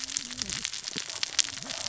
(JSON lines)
{"label": "biophony, cascading saw", "recorder": "SoundTrap 600 or HydroMoth"}